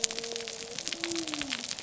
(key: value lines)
label: biophony
recorder: SoundTrap 300